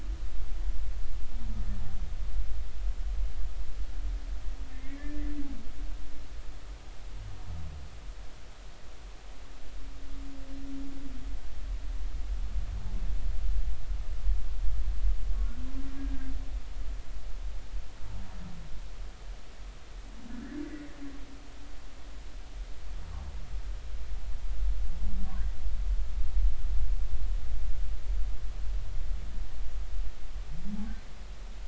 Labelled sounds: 4.7	5.4	humpback whale, 1.7 to 2.3 kHz
20.3	20.6	humpback whale, 1.7 to 2.0 kHz

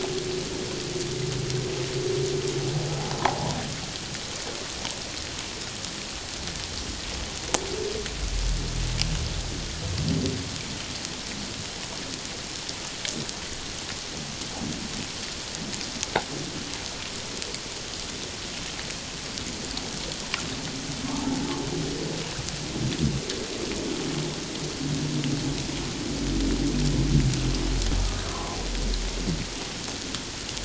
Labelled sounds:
3.2	3.5	humpback whale, 0.78 to 1.1 kHz
21.1	21.4	humpback whale, 0.78 to 0.97 kHz
28.3	28.6	humpback whale, 0.94 to 1.2 kHz

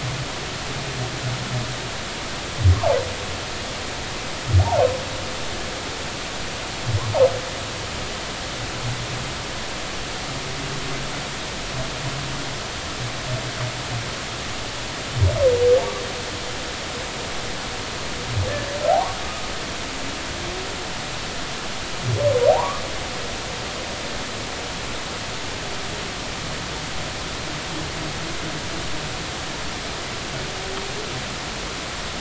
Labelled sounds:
4.6	4.8	humpback whale, 0.80 to 0.99 kHz
18.9	19.2	humpback whale, 0.80 to 1.2 kHz
22.5	22.8	humpback whale, 0.80 to 1.2 kHz

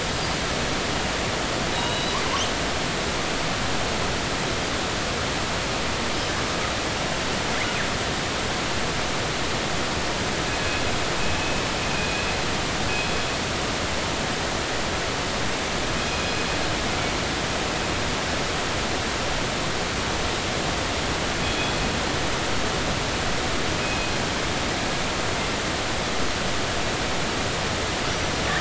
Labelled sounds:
1.7	2.2	killer whale, northern resident, G clan, 2.8 to 4.0 kHz
11.9	12.3	killer whale, northern resident, G clan, 2.4 to 2.6 kHz
21.4	21.8	killer whale, northern resident, G clan, 3.3 to 3.5 kHz
24.8	25.1	killer whale, northern resident, G clan, 2.5 to 2.6 kHz

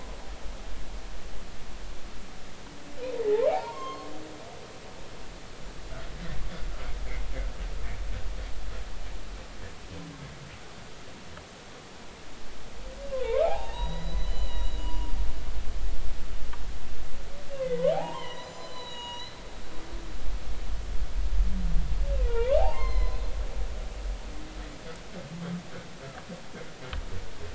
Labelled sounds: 3.2	4.1	humpback whale, 0.80 to 6.5 kHz
13.2	15.1	humpback whale, 0.80 to 5.8 kHz
17.6	19.4	humpback whale, 0.80 to 6.9 kHz
22.1	23.2	humpback whale, 0.80 to 4.3 kHz

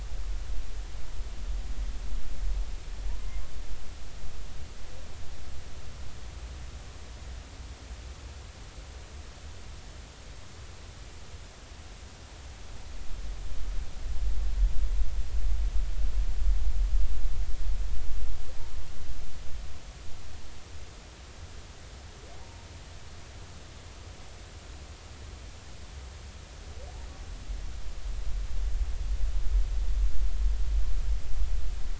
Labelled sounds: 3.1	3.4	humpback whale, 0.90 to 1.1 kHz
22.4	22.7	humpback whale, 0.80 to 0.96 kHz

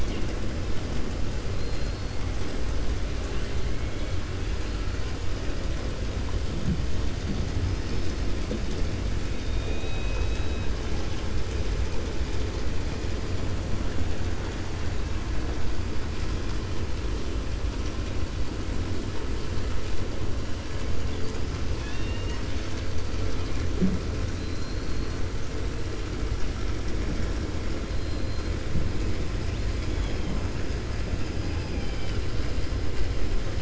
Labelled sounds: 21.7	22.8	killer whale, 0.95 to 6.9 kHz
29.4	30.2	killer whale, 2.5 to 5.1 kHz

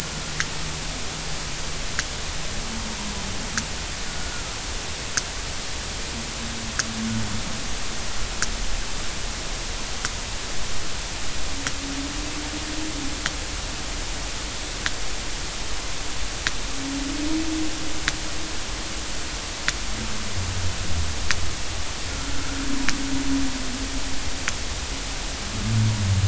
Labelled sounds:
4.2	4.5	humpback whale, 1.3 to 1.5 kHz
22.1	22.5	humpback whale, 1.3 to 1.5 kHz

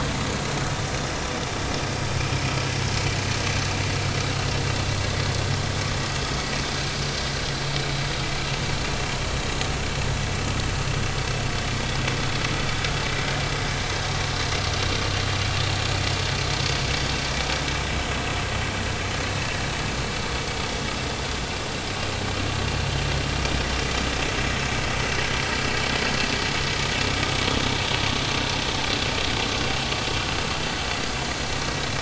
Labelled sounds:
24.5	24.7	vessel noise, 5.2 to 5.4 kHz

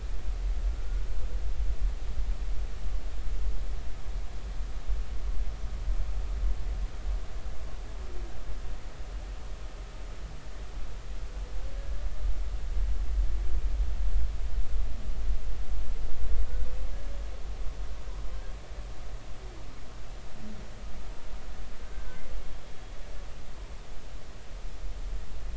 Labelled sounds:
21.8	22.2	humpback whale, 1.5 to 1.6 kHz

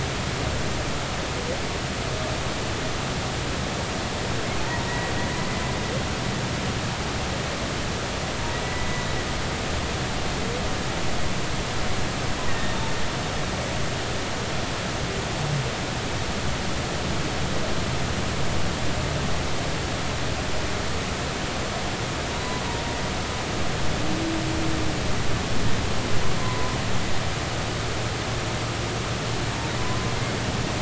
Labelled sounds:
4.9	5.1	humpback whale, 1.8 to 2.0 kHz
8.6	9.1	humpback whale, 1.9 to 2.0 kHz
12.5	12.8	humpback whale, 1.8 to 2.0 kHz
22.3	22.6	humpback whale, 0.93 to 1.1 kHz
26.4	26.8	humpback whale, 0.96 to 1.1 kHz
29.8	30.1	humpback whale, 0.96 to 1.1 kHz

